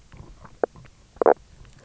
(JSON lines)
{"label": "biophony, knock croak", "recorder": "SoundTrap 300"}